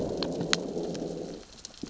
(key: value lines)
label: biophony, growl
recorder: SoundTrap 600 or HydroMoth